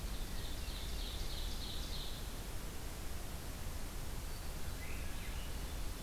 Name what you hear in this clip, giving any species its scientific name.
Seiurus aurocapilla, Catharus guttatus, Catharus ustulatus